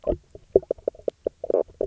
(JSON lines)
{"label": "biophony, knock croak", "recorder": "SoundTrap 300"}